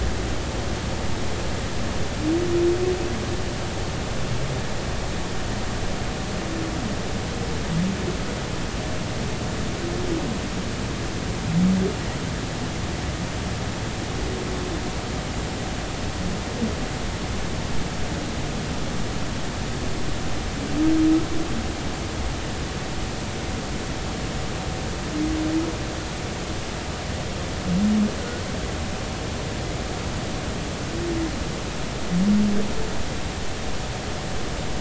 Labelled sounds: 28.2	28.4	humpback whale, 1.4 to 1.5 kHz

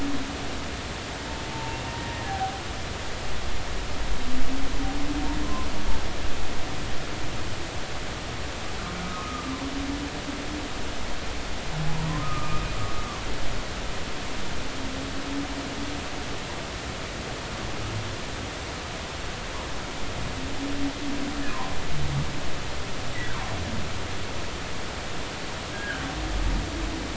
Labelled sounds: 1.5	2.6	humpback whale, 0.80 to 1.9 kHz
9.0	9.5	humpback whale, 1.1 to 1.4 kHz
12.2	12.7	humpback whale, 1.2 to 1.3 kHz
25.7	26.0	humpback whale, 1.4 to 1.7 kHz

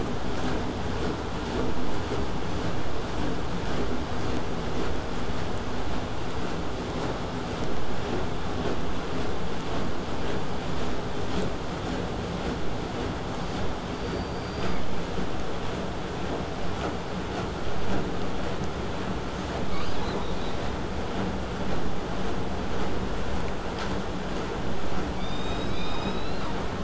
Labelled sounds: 13.4	13.7	killer whale, southern resident, buzz, 0.81 to 5.2 kHz
13.9	14.8	killer whale, southern resident, 4.4 to 4.9 kHz
19.4	20.5	killer whale, southern resident, call S10, 0.24 to 8.0 kHz
25.2	25.9	killer whale, southern resident, 2.1 to 8.0 kHz

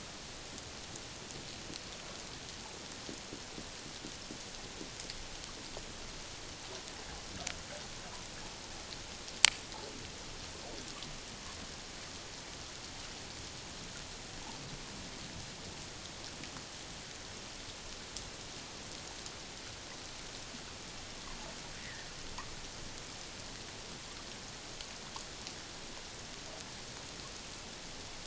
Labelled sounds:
21.8	22.1	water noise, 1.6 to 2.2 kHz

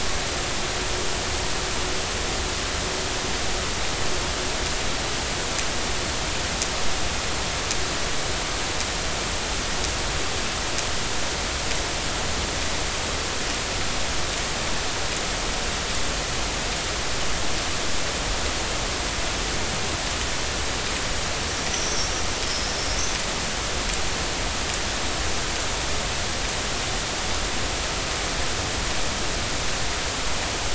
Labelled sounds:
21.7	22.7	vessel noise, 5.0 to 6.0 kHz

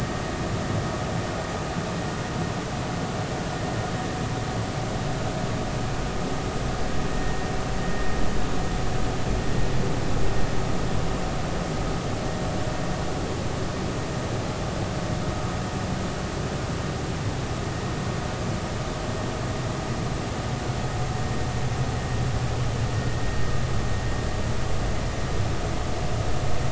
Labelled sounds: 7.1	7.4	vessel noise, 1.8 to 1.9 kHz

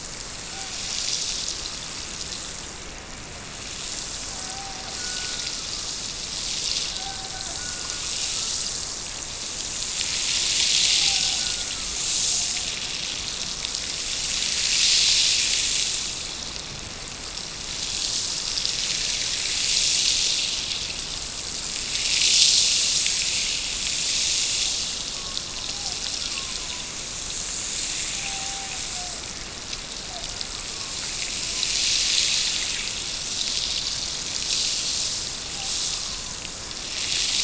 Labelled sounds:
4.4	6.0	killer whale, Bigg's (transient), Gulf of Alaska transient, 0.59 to 1.7 kHz
6.9	8.3	killer whale, Bigg's (transient), Gulf of Alaska transient, 0.55 to 1.8 kHz
10.9	12.0	killer whale, Bigg's (transient), Gulf of Alaska transient, 0.55 to 1.6 kHz
25.1	27.0	killer whale, Bigg's (transient), Gulf of Alaska transient, 0.37 to 1.7 kHz
28.1	29.3	killer whale, Bigg's (transient), Gulf of Alaska transient, 0.46 to 1.0 kHz

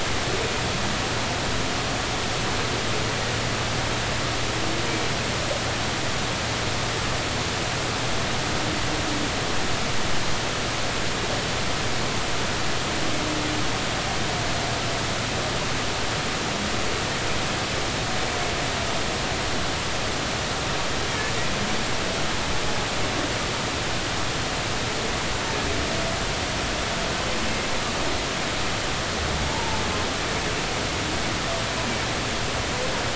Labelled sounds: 29.5	29.8	humpback whale, 0.83 to 0.99 kHz

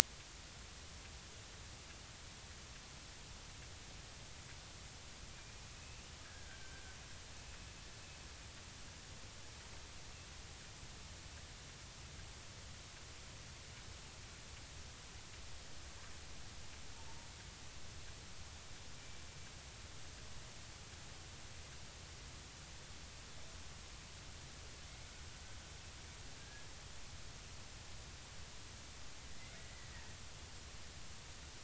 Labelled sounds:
5.7	7.0	killer whale, Bigg's (transient), 1.4 to 2.8 kHz
26.4	26.7	killer whale, Bigg's (transient), 1.6 to 1.7 kHz

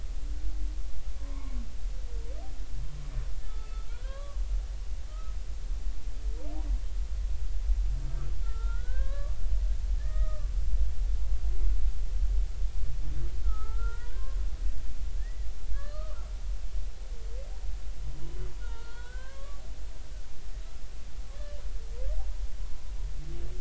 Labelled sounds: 1.2	1.6	humpback whale, 0.83 to 2.3 kHz
3.4	4.4	humpback whale, 0.83 to 1.7 kHz
5.1	5.3	humpback whale, 1.2 to 1.3 kHz
8.4	9.4	humpback whale, 0.86 to 4.0 kHz
10.0	10.5	humpback whale, 1.1 to 2.0 kHz
13.4	14.4	humpback whale, 0.83 to 2.0 kHz
15.2	16.3	humpback whale, 1.0 to 4.5 kHz
18.6	19.6	humpback whale, 0.90 to 4.4 kHz

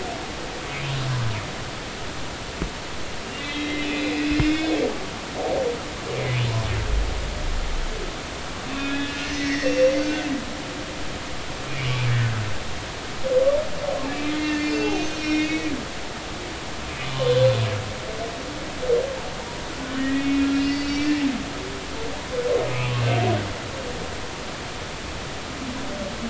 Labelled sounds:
3.4	4.8	humpback whale, 1.5 to 3.9 kHz
8.8	10.3	humpback whale, 1.4 to 5.8 kHz
11.7	12.0	humpback whale, 2.1 to 2.5 kHz
14.0	15.7	humpback whale, 1.7 to 7.3 kHz
17.0	17.4	humpback whale, 0.99 to 3.1 kHz
20.0	21.2	humpback whale, 1.8 to 5.2 kHz
22.7	23.2	humpback whale, 2.1 to 2.8 kHz

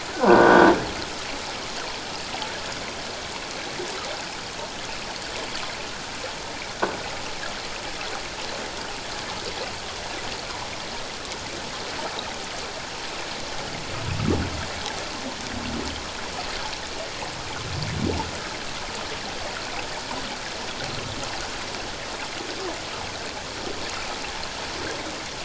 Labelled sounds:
0.1	0.7	croaking sound likely from a nearby submerged object, 1.3 to 1.7 kHz

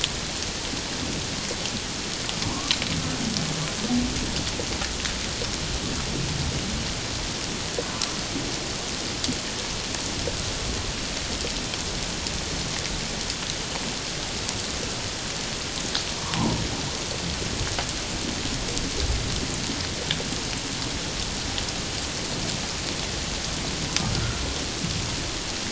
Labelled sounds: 2.4	2.7	humpback whale, 0.88 to 1.2 kHz
16.2	16.6	humpback whale, 0.78 to 1.2 kHz

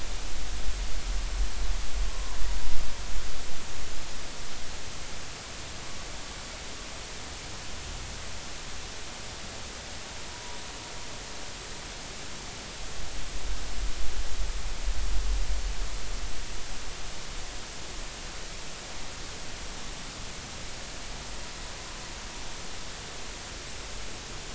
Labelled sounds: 2.1	2.4	humpback whale, 0.96 to 1.1 kHz

